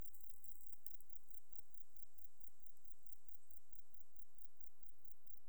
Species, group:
Metrioptera brachyptera
Orthoptera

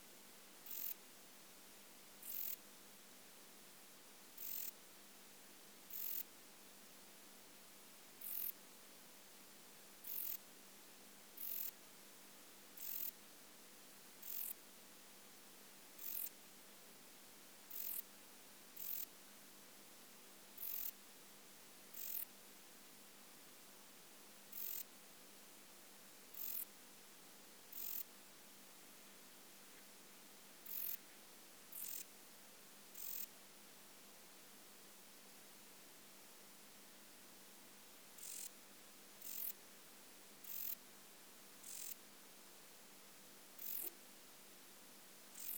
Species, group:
Rhacocleis germanica
Orthoptera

